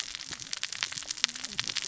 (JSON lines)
{"label": "biophony, cascading saw", "recorder": "SoundTrap 600 or HydroMoth"}